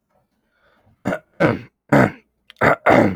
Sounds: Throat clearing